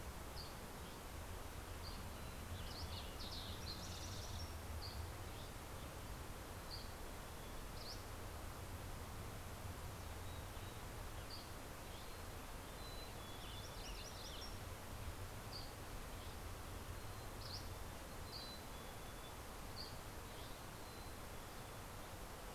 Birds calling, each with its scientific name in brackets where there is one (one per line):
MacGillivray's Warbler (Geothlypis tolmiei)
Western Tanager (Piranga ludoviciana)
Spotted Towhee (Pipilo maculatus)
Mountain Chickadee (Poecile gambeli)
Dusky Flycatcher (Empidonax oberholseri)